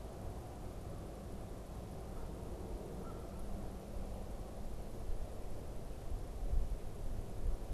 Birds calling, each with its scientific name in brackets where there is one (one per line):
Canada Goose (Branta canadensis)